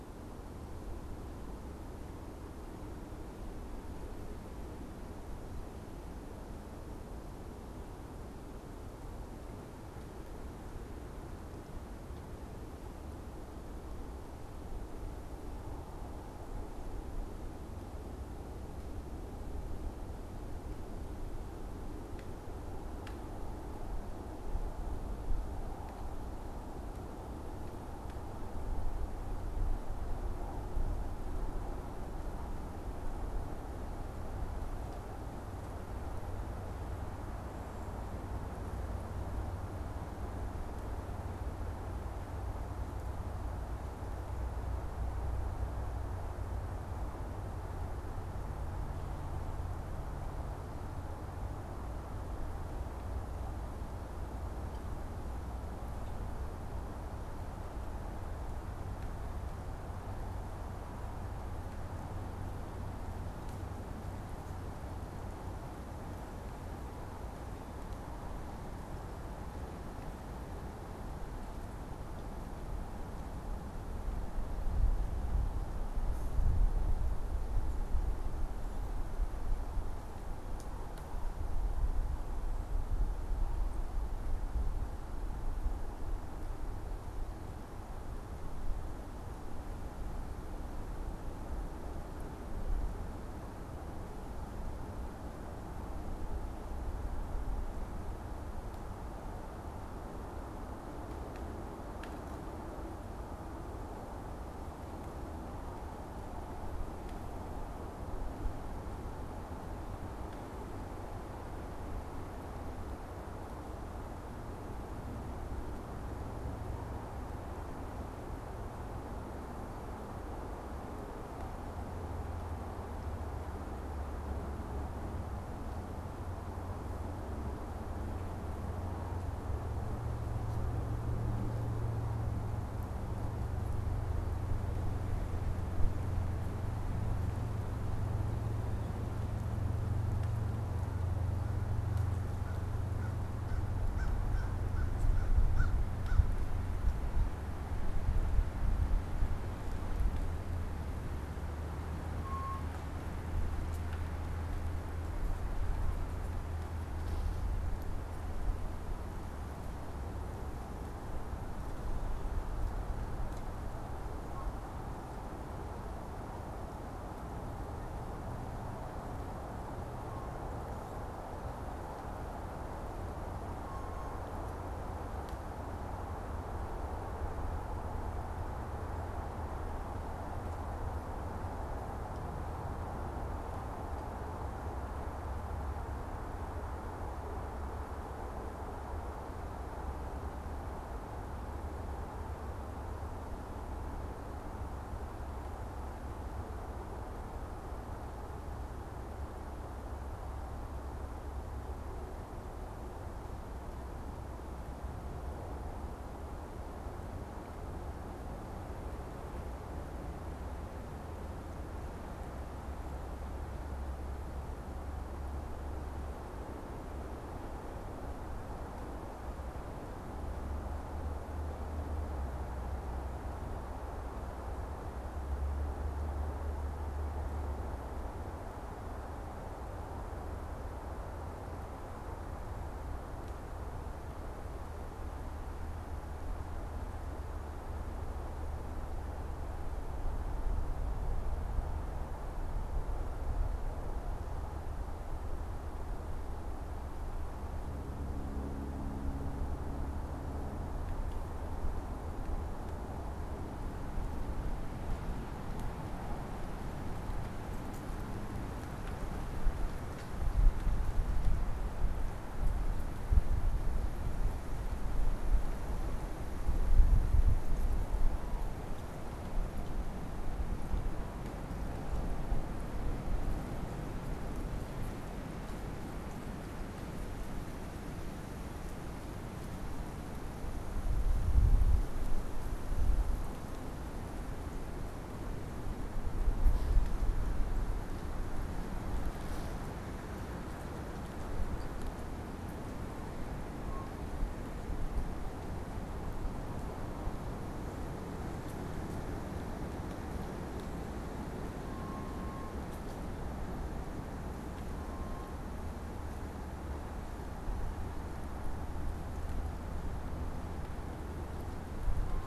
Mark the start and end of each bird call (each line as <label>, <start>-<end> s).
American Crow (Corvus brachyrhynchos), 142.1-146.3 s